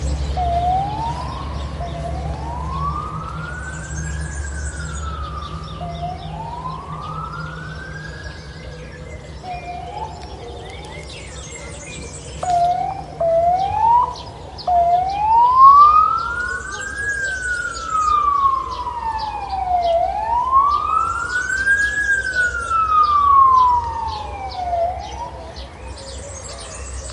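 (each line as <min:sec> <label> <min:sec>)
0:00.1 Birds chirp calmly in a steady pattern outdoors. 0:27.1
0:01.8 A siren repeatedly approaches, echoing outdoors. 0:10.9
0:12.3 A siren echoes loudly and repeatedly outdoors. 0:27.1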